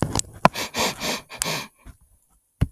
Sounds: Sniff